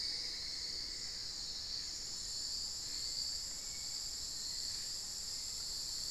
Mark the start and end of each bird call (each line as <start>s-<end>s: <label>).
0.0s-1.7s: Cinnamon-throated Woodcreeper (Dendrexetastes rufigula)
0.0s-6.1s: Hauxwell's Thrush (Turdus hauxwelli)